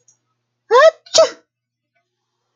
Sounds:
Sneeze